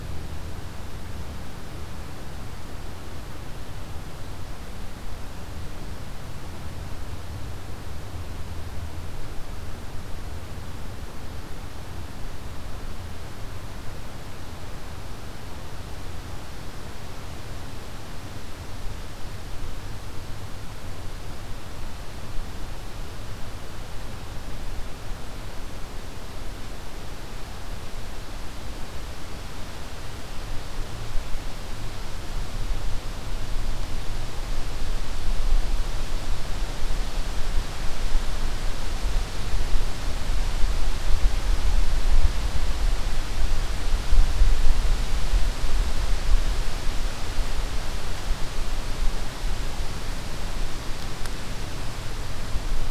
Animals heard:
forest ambience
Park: Hubbard Brook Experimental Forest